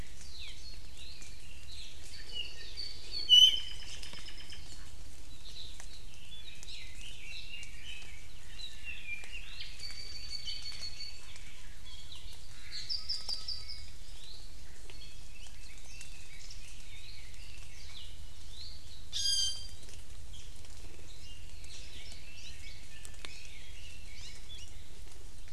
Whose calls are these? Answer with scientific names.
Loxops mana, Himatione sanguinea, Drepanis coccinea, Leiothrix lutea, Garrulax canorus, Myadestes obscurus, Zosterops japonicus